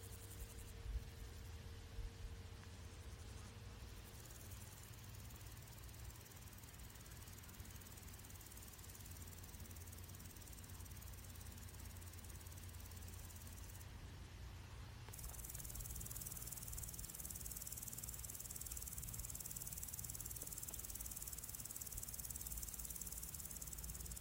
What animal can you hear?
Omocestus viridulus, an orthopteran